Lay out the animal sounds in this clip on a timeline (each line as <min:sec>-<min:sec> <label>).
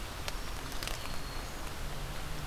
0:00.2-0:01.7 Black-throated Green Warbler (Setophaga virens)